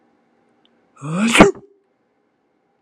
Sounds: Sneeze